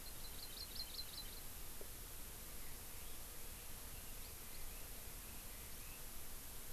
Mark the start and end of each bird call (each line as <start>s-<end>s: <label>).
0.0s-1.4s: Hawaii Amakihi (Chlorodrepanis virens)
2.6s-6.0s: Red-billed Leiothrix (Leiothrix lutea)